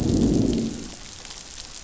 {"label": "biophony, growl", "recorder": "SoundTrap 500"}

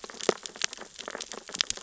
{"label": "biophony, sea urchins (Echinidae)", "recorder": "SoundTrap 600 or HydroMoth"}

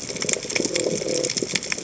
{"label": "biophony", "recorder": "HydroMoth"}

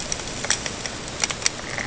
{"label": "ambient", "recorder": "HydroMoth"}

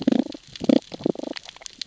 {"label": "biophony, damselfish", "recorder": "SoundTrap 600 or HydroMoth"}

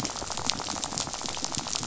{"label": "biophony, rattle", "recorder": "SoundTrap 500"}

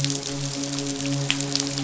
{"label": "biophony, midshipman", "recorder": "SoundTrap 500"}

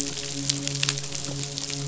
{"label": "biophony, midshipman", "recorder": "SoundTrap 500"}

